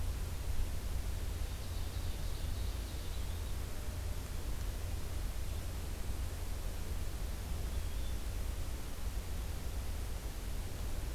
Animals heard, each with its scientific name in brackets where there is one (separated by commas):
Yellow-bellied Flycatcher (Empidonax flaviventris), Ovenbird (Seiurus aurocapilla)